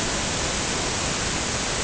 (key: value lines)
label: ambient
recorder: HydroMoth